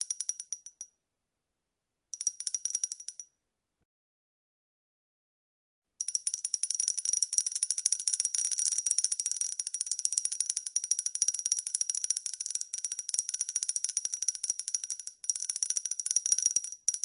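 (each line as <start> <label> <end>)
0.0 A ticking noise repeats. 0.6
2.1 A ticking noise repeats. 3.3
5.9 A ticking noise repeats rapidly. 17.0
6.0 Domino pieces tipping over in a chain. 17.0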